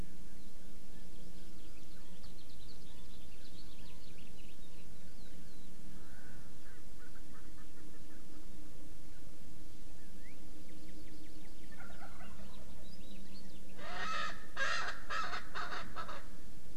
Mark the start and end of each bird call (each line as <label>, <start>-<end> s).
Chinese Hwamei (Garrulax canorus), 0.8-1.0 s
Chinese Hwamei (Garrulax canorus), 1.9-2.1 s
House Finch (Haemorhous mexicanus), 2.2-4.7 s
Chinese Hwamei (Garrulax canorus), 2.8-3.0 s
Chinese Hwamei (Garrulax canorus), 3.8-4.0 s
Erckel's Francolin (Pternistis erckelii), 5.8-8.4 s
Wild Turkey (Meleagris gallopavo), 11.6-12.5 s
Erckel's Francolin (Pternistis erckelii), 13.7-16.2 s